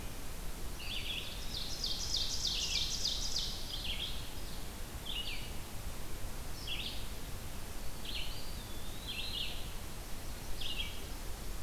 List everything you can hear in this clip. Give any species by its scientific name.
Vireo olivaceus, Contopus virens, Seiurus aurocapilla, Setophaga coronata